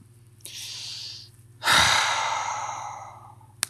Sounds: Sigh